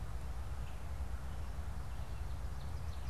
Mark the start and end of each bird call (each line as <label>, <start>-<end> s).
Red-eyed Vireo (Vireo olivaceus), 0.0-3.1 s
Ovenbird (Seiurus aurocapilla), 2.1-3.1 s